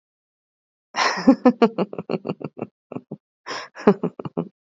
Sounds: Laughter